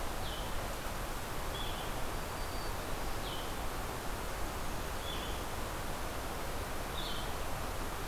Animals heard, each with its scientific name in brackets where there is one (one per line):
Blue-headed Vireo (Vireo solitarius)
Black-throated Green Warbler (Setophaga virens)
Blackburnian Warbler (Setophaga fusca)